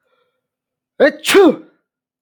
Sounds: Sneeze